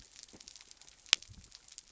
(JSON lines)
{"label": "biophony", "recorder": "SoundTrap 300"}